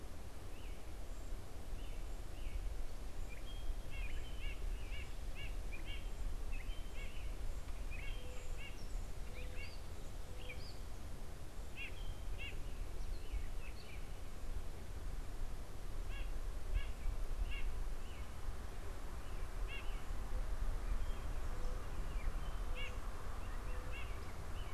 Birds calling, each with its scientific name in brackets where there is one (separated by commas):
White-breasted Nuthatch (Sitta carolinensis), American Robin (Turdus migratorius), Gray Catbird (Dumetella carolinensis)